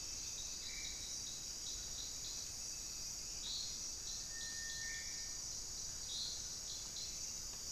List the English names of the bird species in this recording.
Cinereous Tinamou, Black-faced Antthrush